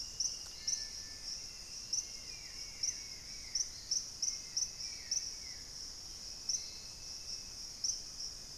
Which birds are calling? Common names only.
unidentified bird